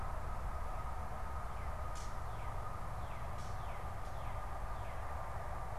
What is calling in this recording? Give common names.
Northern Cardinal, Gray Catbird